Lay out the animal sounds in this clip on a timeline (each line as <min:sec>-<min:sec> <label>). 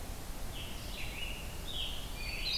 0:00.0-0:01.1 Red-eyed Vireo (Vireo olivaceus)
0:00.4-0:02.6 Scarlet Tanager (Piranga olivacea)
0:02.0-0:02.6 Hermit Thrush (Catharus guttatus)